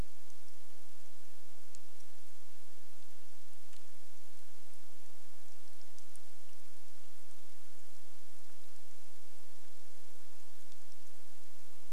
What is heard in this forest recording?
rain